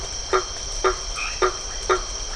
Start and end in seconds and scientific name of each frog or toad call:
0.0	2.3	Boana faber
1.0	1.6	Boana albomarginata